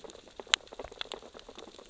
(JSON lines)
{"label": "biophony, sea urchins (Echinidae)", "recorder": "SoundTrap 600 or HydroMoth"}